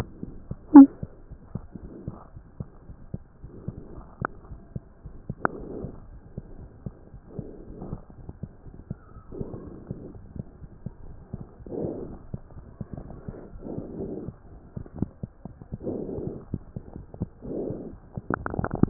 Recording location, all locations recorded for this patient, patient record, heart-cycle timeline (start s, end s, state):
aortic valve (AV)
aortic valve (AV)+pulmonary valve (PV)+tricuspid valve (TV)+mitral valve (MV)
#Age: Infant
#Sex: Male
#Height: 80.0 cm
#Weight: 10.9 kg
#Pregnancy status: False
#Murmur: Absent
#Murmur locations: nan
#Most audible location: nan
#Systolic murmur timing: nan
#Systolic murmur shape: nan
#Systolic murmur grading: nan
#Systolic murmur pitch: nan
#Systolic murmur quality: nan
#Diastolic murmur timing: nan
#Diastolic murmur shape: nan
#Diastolic murmur grading: nan
#Diastolic murmur pitch: nan
#Diastolic murmur quality: nan
#Outcome: Normal
#Campaign: 2015 screening campaign
0.00	1.08	unannotated
1.08	1.28	diastole
1.28	1.37	S1
1.37	1.52	systole
1.52	1.62	S2
1.62	1.82	diastole
1.82	1.89	S1
1.89	2.04	systole
2.04	2.12	S2
2.12	2.33	diastole
2.33	2.41	S1
2.41	2.57	systole
2.57	2.65	S2
2.65	2.87	diastole
2.87	2.94	S1
2.94	3.12	systole
3.12	3.19	S2
3.19	3.43	diastole
3.43	3.50	S1
3.50	3.65	systole
3.65	3.72	S2
3.72	3.94	diastole
3.94	4.03	S1
4.03	4.18	systole
4.18	4.24	S2
4.24	4.50	diastole
4.50	4.58	S1
4.58	4.74	systole
4.74	4.79	S2
4.79	5.05	diastole
5.05	5.16	S1
5.16	5.28	systole
5.28	5.34	S2
5.34	5.58	diastole
5.58	5.67	S1
5.67	5.81	systole
5.81	5.88	S2
5.88	6.08	diastole
6.08	6.19	S1
6.19	6.36	systole
6.36	6.43	S2
6.43	18.90	unannotated